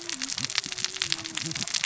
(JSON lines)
{"label": "biophony, cascading saw", "recorder": "SoundTrap 600 or HydroMoth"}